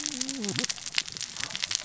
{"label": "biophony, cascading saw", "recorder": "SoundTrap 600 or HydroMoth"}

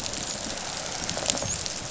{"label": "biophony, rattle response", "recorder": "SoundTrap 500"}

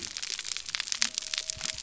{"label": "biophony", "recorder": "SoundTrap 300"}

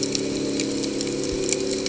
{"label": "anthrophony, boat engine", "recorder": "HydroMoth"}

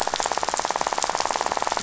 {"label": "biophony, rattle", "recorder": "SoundTrap 500"}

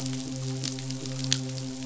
{"label": "biophony, midshipman", "recorder": "SoundTrap 500"}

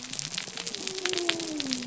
{"label": "biophony", "recorder": "SoundTrap 300"}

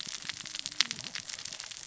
{"label": "biophony, cascading saw", "recorder": "SoundTrap 600 or HydroMoth"}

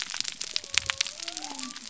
{"label": "biophony", "recorder": "SoundTrap 300"}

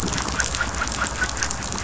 {"label": "anthrophony, boat engine", "recorder": "SoundTrap 500"}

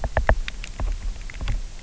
{"label": "biophony, knock", "recorder": "SoundTrap 300"}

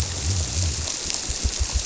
{"label": "biophony", "recorder": "SoundTrap 300"}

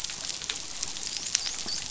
{"label": "biophony, dolphin", "recorder": "SoundTrap 500"}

